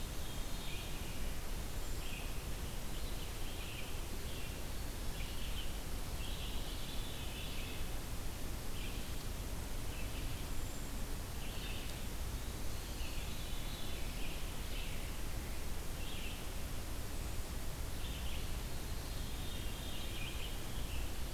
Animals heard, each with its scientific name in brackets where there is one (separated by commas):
Veery (Catharus fuscescens), Red-eyed Vireo (Vireo olivaceus)